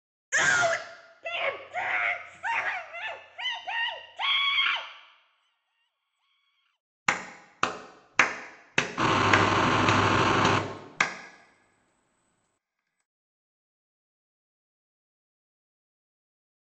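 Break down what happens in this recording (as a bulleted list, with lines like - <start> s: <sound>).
- 0.3 s: someone screams
- 1.2 s: there is screaming
- 7.1 s: someone claps
- 9.0 s: the sound of an engine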